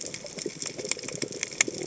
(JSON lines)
{"label": "biophony", "recorder": "HydroMoth"}